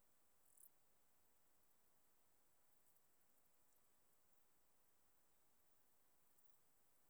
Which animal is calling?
Lluciapomaresius stalii, an orthopteran